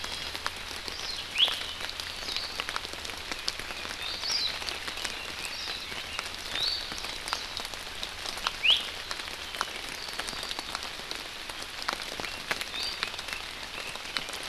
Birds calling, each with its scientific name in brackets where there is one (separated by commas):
Hawaii Akepa (Loxops coccineus), Iiwi (Drepanis coccinea)